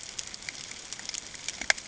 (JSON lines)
{"label": "ambient", "recorder": "HydroMoth"}